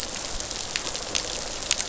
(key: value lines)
label: biophony, rattle response
recorder: SoundTrap 500